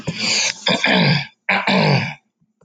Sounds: Throat clearing